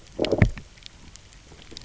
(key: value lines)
label: biophony, low growl
recorder: SoundTrap 300